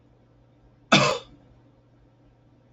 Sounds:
Cough